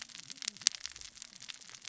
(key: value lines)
label: biophony, cascading saw
recorder: SoundTrap 600 or HydroMoth